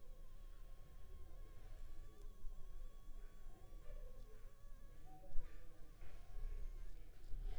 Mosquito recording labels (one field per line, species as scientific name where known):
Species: Anopheles funestus s.s.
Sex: female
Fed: unfed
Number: one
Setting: cup